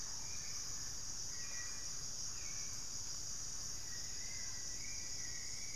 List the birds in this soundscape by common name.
Hauxwell's Thrush, Black-faced Antthrush, Rufous-fronted Antthrush